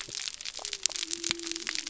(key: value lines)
label: biophony
recorder: SoundTrap 300